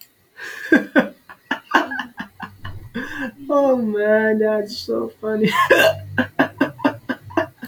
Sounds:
Laughter